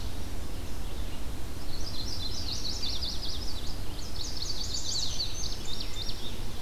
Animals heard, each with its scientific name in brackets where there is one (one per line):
Indigo Bunting (Passerina cyanea)
Chestnut-sided Warbler (Setophaga pensylvanica)